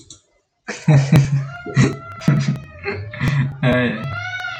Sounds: Laughter